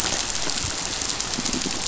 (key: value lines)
label: biophony
recorder: SoundTrap 500